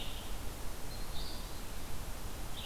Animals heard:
Red-eyed Vireo (Vireo olivaceus)
Eastern Wood-Pewee (Contopus virens)

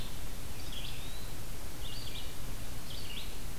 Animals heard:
Eastern Wood-Pewee (Contopus virens)
Red-eyed Vireo (Vireo olivaceus)

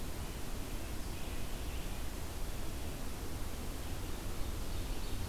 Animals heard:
Ovenbird (Seiurus aurocapilla)
Red-eyed Vireo (Vireo olivaceus)

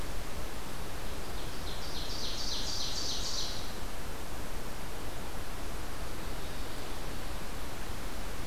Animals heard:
Ovenbird (Seiurus aurocapilla)

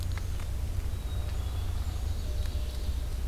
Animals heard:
Black-capped Chickadee (Poecile atricapillus)
Red-eyed Vireo (Vireo olivaceus)
Ovenbird (Seiurus aurocapilla)

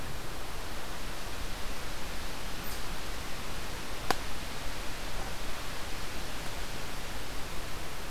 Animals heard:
Eastern Chipmunk (Tamias striatus)

